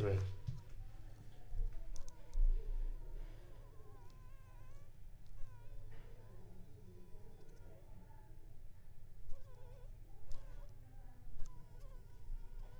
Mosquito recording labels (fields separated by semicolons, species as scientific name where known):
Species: Anopheles funestus s.l.; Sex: female; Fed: unfed; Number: one; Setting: cup